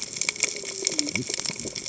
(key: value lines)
label: biophony, cascading saw
recorder: HydroMoth